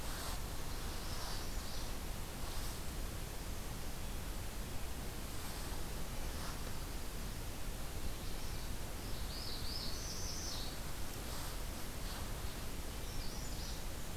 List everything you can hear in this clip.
Magnolia Warbler, Northern Parula